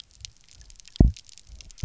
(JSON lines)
{"label": "biophony, double pulse", "recorder": "SoundTrap 300"}